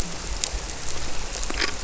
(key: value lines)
label: biophony
recorder: SoundTrap 300